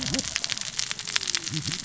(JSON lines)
{"label": "biophony, cascading saw", "recorder": "SoundTrap 600 or HydroMoth"}